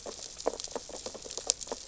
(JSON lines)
{"label": "biophony, sea urchins (Echinidae)", "recorder": "SoundTrap 600 or HydroMoth"}